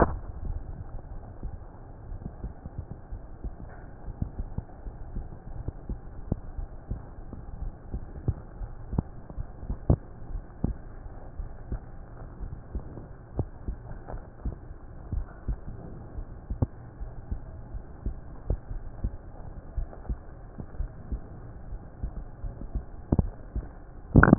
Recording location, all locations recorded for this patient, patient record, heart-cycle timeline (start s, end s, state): aortic valve (AV)
aortic valve (AV)+pulmonary valve (PV)+tricuspid valve (TV)+mitral valve (MV)
#Age: Child
#Sex: Female
#Height: 138.0 cm
#Weight: 33.5 kg
#Pregnancy status: False
#Murmur: Unknown
#Murmur locations: nan
#Most audible location: nan
#Systolic murmur timing: nan
#Systolic murmur shape: nan
#Systolic murmur grading: nan
#Systolic murmur pitch: nan
#Systolic murmur quality: nan
#Diastolic murmur timing: nan
#Diastolic murmur shape: nan
#Diastolic murmur grading: nan
#Diastolic murmur pitch: nan
#Diastolic murmur quality: nan
#Outcome: Normal
#Campaign: 2015 screening campaign
0.00	8.98	unannotated
8.98	9.36	diastole
9.36	9.48	S1
9.48	9.68	systole
9.68	9.78	S2
9.78	10.30	diastole
10.30	10.44	S1
10.44	10.62	systole
10.62	10.76	S2
10.76	11.36	diastole
11.36	11.50	S1
11.50	11.70	systole
11.70	11.80	S2
11.80	12.40	diastole
12.40	12.50	S1
12.50	12.72	systole
12.72	12.84	S2
12.84	13.36	diastole
13.36	13.48	S1
13.48	13.63	systole
13.63	13.74	S2
13.74	14.11	diastole
14.11	14.24	S1
14.24	14.44	systole
14.44	14.58	S2
14.58	15.10	diastole
15.10	15.28	S1
15.28	15.46	systole
15.46	15.60	S2
15.60	16.16	diastole
16.16	16.28	S1
16.28	16.48	systole
16.48	16.60	S2
16.60	17.02	diastole
17.02	24.38	unannotated